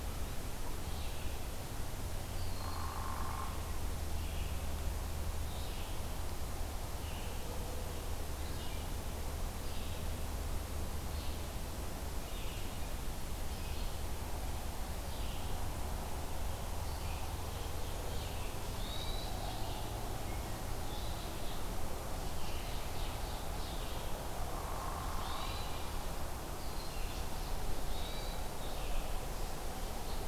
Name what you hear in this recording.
Red-eyed Vireo, Eastern Wood-Pewee, Hairy Woodpecker, Hermit Thrush, Ovenbird